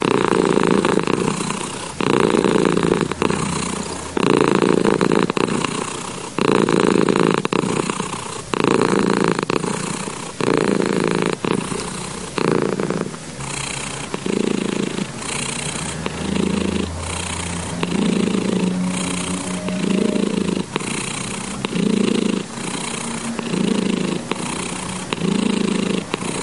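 A cat purrs with alternating louder inhales and softer exhales, repeating the pattern seven times. 0:00.0 - 0:14.1
A cat purrs with alternating inhales and exhales of about equal volume. 0:14.1 - 0:26.4

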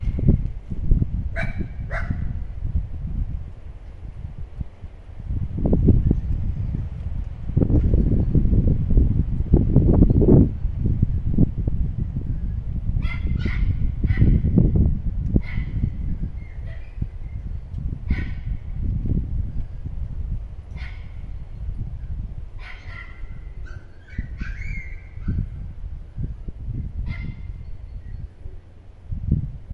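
Wind is blowing while a puppy barks in the background. 0:00.0 - 0:03.5
Rhythmic wind is blowing. 0:03.6 - 0:12.4
Wind is blowing while a puppy barks in the background. 0:12.5 - 0:29.7

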